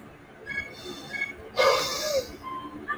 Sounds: Sigh